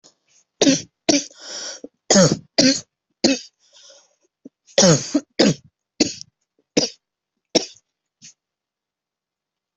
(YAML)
expert_labels:
- quality: good
  cough_type: dry
  dyspnea: false
  wheezing: false
  stridor: false
  choking: false
  congestion: false
  nothing: true
  diagnosis: upper respiratory tract infection
  severity: severe
age: 44
gender: male
respiratory_condition: false
fever_muscle_pain: false
status: symptomatic